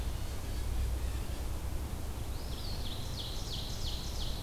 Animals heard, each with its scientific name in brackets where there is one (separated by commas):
Ovenbird (Seiurus aurocapilla), Eastern Wood-Pewee (Contopus virens)